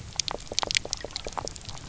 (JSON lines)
{"label": "biophony, knock croak", "recorder": "SoundTrap 300"}